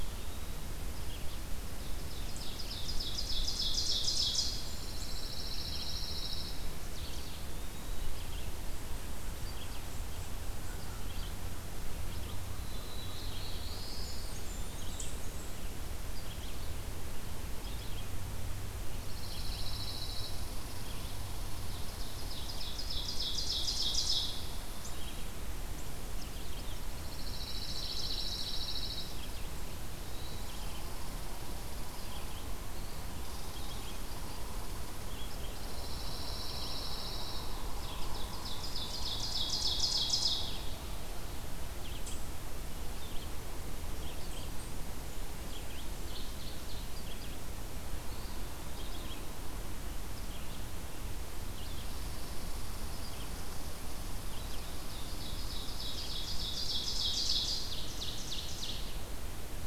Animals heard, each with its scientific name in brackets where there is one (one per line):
Blackburnian Warbler (Setophaga fusca)
Eastern Wood-Pewee (Contopus virens)
Red-eyed Vireo (Vireo olivaceus)
Red Squirrel (Tamiasciurus hudsonicus)
Pine Warbler (Setophaga pinus)
Black-throated Blue Warbler (Setophaga caerulescens)
Ovenbird (Seiurus aurocapilla)
Eastern Chipmunk (Tamias striatus)